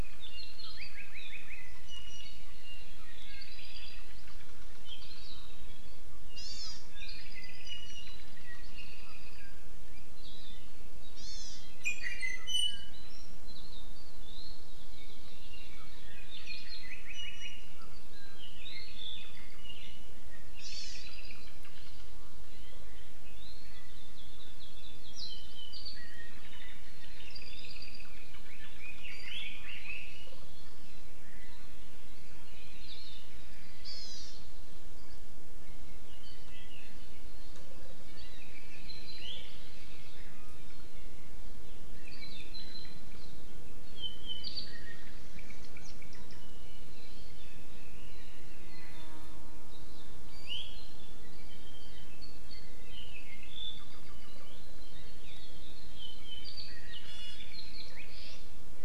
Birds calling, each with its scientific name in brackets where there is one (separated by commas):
Iiwi (Drepanis coccinea), Hawaii Akepa (Loxops coccineus), Red-billed Leiothrix (Leiothrix lutea), Hawaii Amakihi (Chlorodrepanis virens), Apapane (Himatione sanguinea)